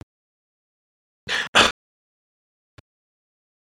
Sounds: Sneeze